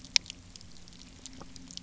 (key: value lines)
label: anthrophony, boat engine
recorder: SoundTrap 300